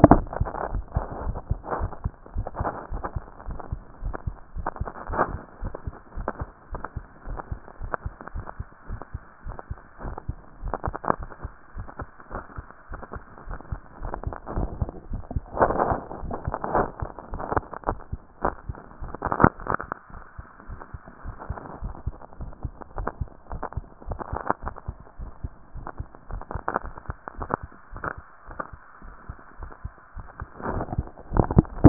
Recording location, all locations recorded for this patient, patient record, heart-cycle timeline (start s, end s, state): mitral valve (MV)
aortic valve (AV)+pulmonary valve (PV)+tricuspid valve (TV)+mitral valve (MV)
#Age: Adolescent
#Sex: Male
#Height: 165.0 cm
#Weight: 55.7 kg
#Pregnancy status: False
#Murmur: Absent
#Murmur locations: nan
#Most audible location: nan
#Systolic murmur timing: nan
#Systolic murmur shape: nan
#Systolic murmur grading: nan
#Systolic murmur pitch: nan
#Systolic murmur quality: nan
#Diastolic murmur timing: nan
#Diastolic murmur shape: nan
#Diastolic murmur grading: nan
#Diastolic murmur pitch: nan
#Diastolic murmur quality: nan
#Outcome: Abnormal
#Campaign: 2014 screening campaign
0.00	5.62	unannotated
5.62	5.72	S1
5.72	5.86	systole
5.86	5.94	S2
5.94	6.16	diastole
6.16	6.28	S1
6.28	6.40	systole
6.40	6.50	S2
6.50	6.70	diastole
6.70	6.82	S1
6.82	6.96	systole
6.96	7.04	S2
7.04	7.28	diastole
7.28	7.40	S1
7.40	7.50	systole
7.50	7.60	S2
7.60	7.80	diastole
7.80	7.92	S1
7.92	8.04	systole
8.04	8.14	S2
8.14	8.34	diastole
8.34	8.46	S1
8.46	8.58	systole
8.58	8.68	S2
8.68	8.88	diastole
8.88	9.00	S1
9.00	9.14	systole
9.14	9.22	S2
9.22	9.44	diastole
9.44	9.56	S1
9.56	9.70	systole
9.70	9.80	S2
9.80	10.04	diastole
10.04	10.16	S1
10.16	10.28	systole
10.28	10.36	S2
10.36	10.62	diastole
10.62	10.74	S1
10.74	10.86	systole
10.86	10.96	S2
10.96	11.18	diastole
11.18	11.28	S1
11.28	11.42	systole
11.42	11.52	S2
11.52	11.76	diastole
11.76	11.86	S1
11.86	12.00	systole
12.00	12.10	S2
12.10	12.32	diastole
12.32	12.42	S1
12.42	12.58	systole
12.58	12.68	S2
12.68	12.90	diastole
12.90	13.00	S1
13.00	13.14	systole
13.14	13.24	S2
13.24	13.46	diastole
13.46	13.58	S1
13.58	13.70	systole
13.70	13.80	S2
13.80	14.02	diastole
14.02	14.14	S1
14.14	14.26	systole
14.26	14.34	S2
14.34	14.56	diastole
14.56	14.69	S1
14.69	14.80	systole
14.80	14.90	S2
14.90	15.10	diastole
15.10	15.22	S1
15.22	15.34	systole
15.34	15.44	S2
15.44	15.65	diastole
15.65	31.89	unannotated